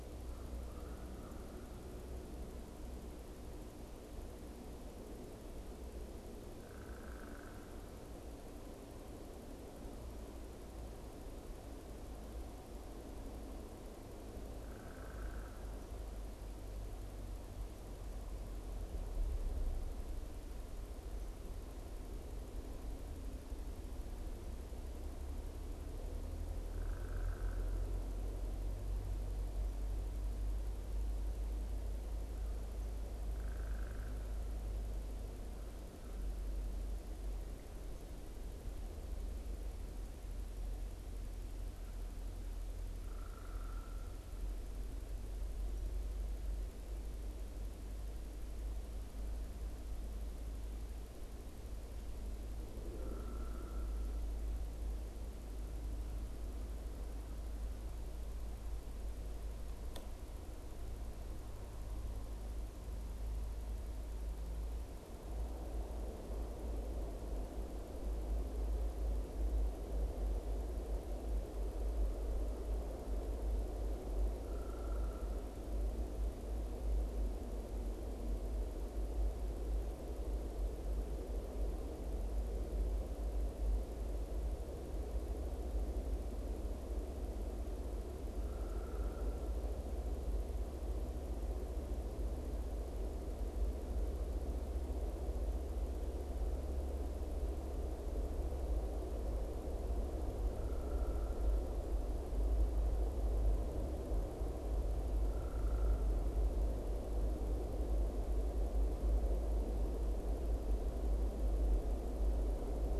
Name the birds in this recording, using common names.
American Crow, Downy Woodpecker